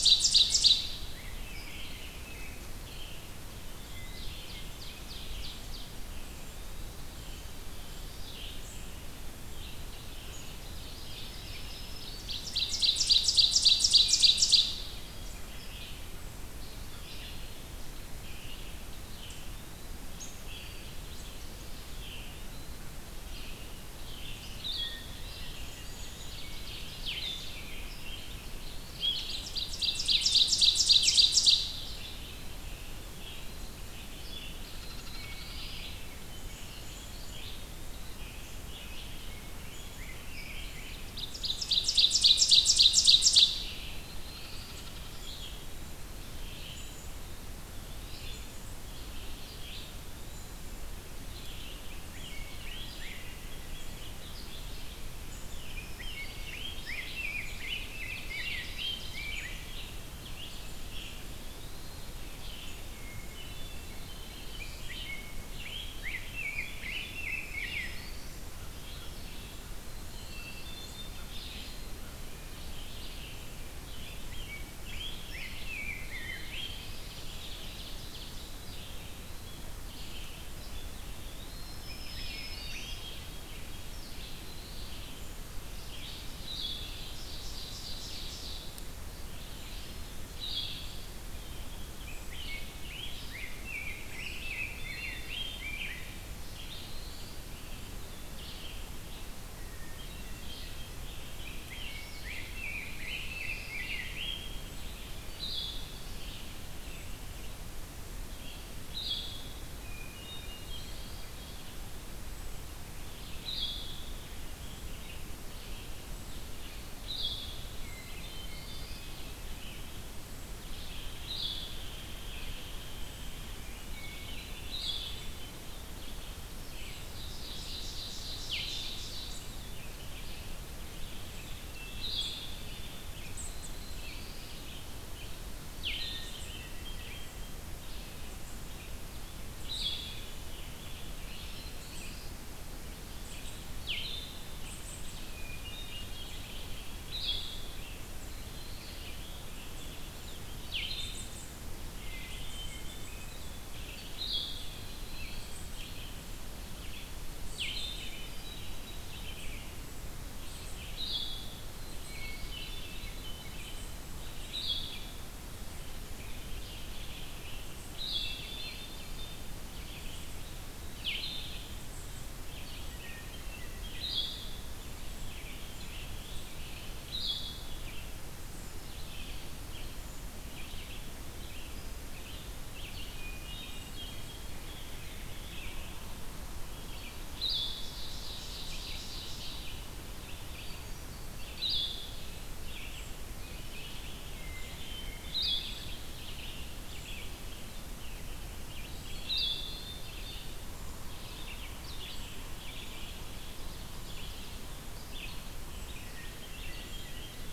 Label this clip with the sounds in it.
Ovenbird, Red-eyed Vireo, Rose-breasted Grosbeak, Eastern Wood-Pewee, Hermit Thrush, Black-throated Green Warbler, American Crow, Black-capped Chickadee, Blue-headed Vireo, Scarlet Tanager, Black-throated Blue Warbler, Hairy Woodpecker